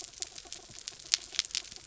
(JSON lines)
{"label": "anthrophony, mechanical", "recorder": "SoundTrap 300"}